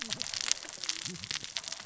{"label": "biophony, cascading saw", "recorder": "SoundTrap 600 or HydroMoth"}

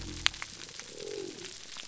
{"label": "biophony", "recorder": "SoundTrap 300"}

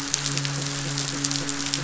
{"label": "biophony", "recorder": "SoundTrap 500"}
{"label": "biophony, midshipman", "recorder": "SoundTrap 500"}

